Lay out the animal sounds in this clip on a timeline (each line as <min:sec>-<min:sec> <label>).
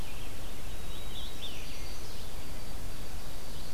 0:00.0-0:02.4 Red-eyed Vireo (Vireo olivaceus)
0:00.2-0:01.9 Scarlet Tanager (Piranga olivacea)
0:00.6-0:03.7 White-throated Sparrow (Zonotrichia albicollis)
0:01.1-0:02.3 Chestnut-sided Warbler (Setophaga pensylvanica)